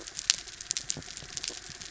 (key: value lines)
label: anthrophony, mechanical
recorder: SoundTrap 300